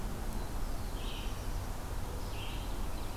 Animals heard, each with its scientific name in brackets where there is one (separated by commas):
Red-eyed Vireo (Vireo olivaceus), Black-throated Blue Warbler (Setophaga caerulescens)